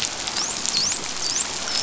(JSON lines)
{"label": "biophony, dolphin", "recorder": "SoundTrap 500"}